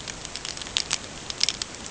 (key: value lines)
label: ambient
recorder: HydroMoth